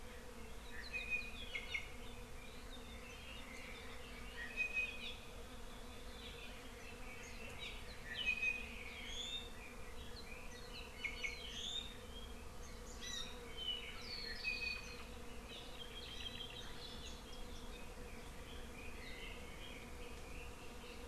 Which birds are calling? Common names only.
Iiwi, Apapane